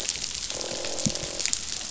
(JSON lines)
{"label": "biophony, croak", "recorder": "SoundTrap 500"}